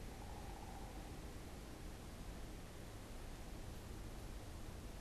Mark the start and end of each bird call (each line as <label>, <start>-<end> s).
unidentified bird, 0.0-1.2 s